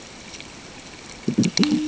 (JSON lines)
{"label": "ambient", "recorder": "HydroMoth"}